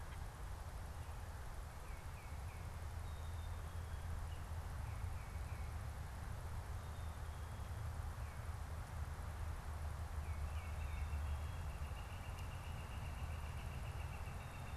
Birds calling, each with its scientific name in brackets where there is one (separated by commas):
Northern Flicker (Colaptes auratus), Black-capped Chickadee (Poecile atricapillus), Tufted Titmouse (Baeolophus bicolor)